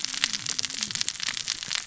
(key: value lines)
label: biophony, cascading saw
recorder: SoundTrap 600 or HydroMoth